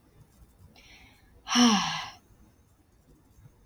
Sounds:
Sigh